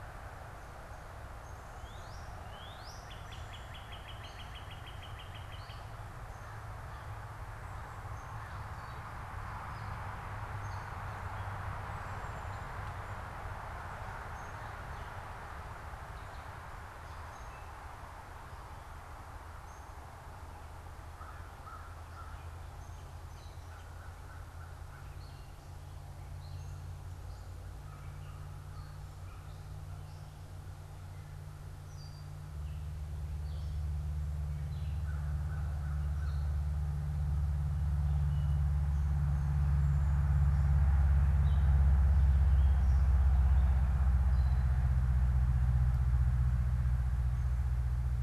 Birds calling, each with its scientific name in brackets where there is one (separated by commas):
Gray Catbird (Dumetella carolinensis), Northern Cardinal (Cardinalis cardinalis), American Crow (Corvus brachyrhynchos)